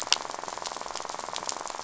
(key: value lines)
label: biophony, rattle
recorder: SoundTrap 500